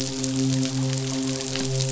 {"label": "biophony, midshipman", "recorder": "SoundTrap 500"}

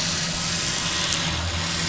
{"label": "anthrophony, boat engine", "recorder": "SoundTrap 500"}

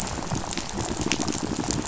{"label": "biophony, rattle", "recorder": "SoundTrap 500"}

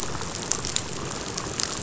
{"label": "biophony, chatter", "recorder": "SoundTrap 500"}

